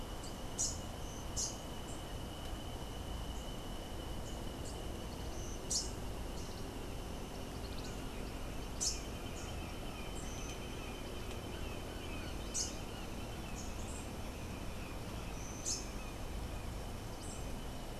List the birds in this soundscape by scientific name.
Basileuterus rufifrons